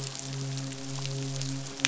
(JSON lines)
{"label": "biophony, midshipman", "recorder": "SoundTrap 500"}